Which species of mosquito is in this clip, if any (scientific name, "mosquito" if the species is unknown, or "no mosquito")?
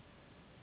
Anopheles gambiae s.s.